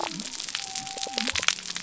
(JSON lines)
{"label": "biophony", "recorder": "SoundTrap 300"}